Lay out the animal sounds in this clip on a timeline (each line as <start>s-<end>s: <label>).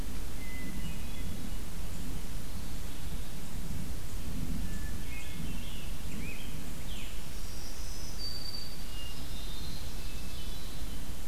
0.4s-1.7s: Hermit Thrush (Catharus guttatus)
4.4s-5.7s: Hermit Thrush (Catharus guttatus)
4.7s-7.6s: Scarlet Tanager (Piranga olivacea)
6.9s-9.2s: Black-throated Green Warbler (Setophaga virens)
8.6s-11.3s: Hermit Thrush (Catharus guttatus)
8.8s-10.7s: Ovenbird (Seiurus aurocapilla)